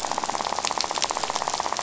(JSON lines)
{"label": "biophony, rattle", "recorder": "SoundTrap 500"}